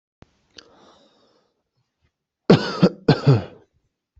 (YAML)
expert_labels:
- quality: ok
  cough_type: dry
  dyspnea: false
  wheezing: false
  stridor: false
  choking: false
  congestion: false
  nothing: true
  diagnosis: healthy cough
  severity: pseudocough/healthy cough
- quality: good
  cough_type: dry
  dyspnea: false
  wheezing: false
  stridor: false
  choking: false
  congestion: false
  nothing: true
  diagnosis: COVID-19
  severity: unknown
- quality: good
  cough_type: dry
  dyspnea: false
  wheezing: false
  stridor: false
  choking: false
  congestion: false
  nothing: true
  diagnosis: upper respiratory tract infection
  severity: mild
- quality: good
  cough_type: dry
  dyspnea: false
  wheezing: false
  stridor: false
  choking: false
  congestion: false
  nothing: true
  diagnosis: healthy cough
  severity: pseudocough/healthy cough
age: 27
gender: male
respiratory_condition: false
fever_muscle_pain: false
status: healthy